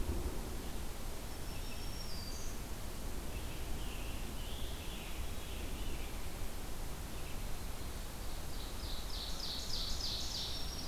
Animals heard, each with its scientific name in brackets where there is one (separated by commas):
Black-throated Green Warbler (Setophaga virens), Veery (Catharus fuscescens), Ovenbird (Seiurus aurocapilla), Scarlet Tanager (Piranga olivacea), Black-throated Blue Warbler (Setophaga caerulescens)